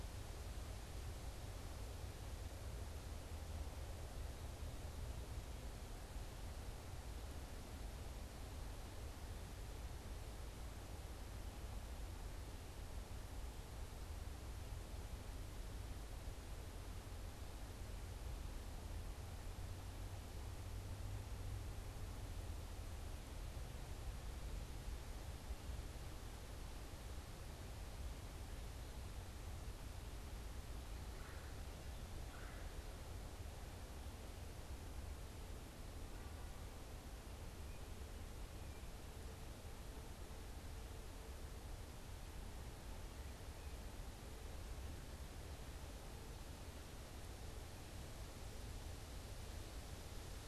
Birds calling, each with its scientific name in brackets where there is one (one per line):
Red-bellied Woodpecker (Melanerpes carolinus)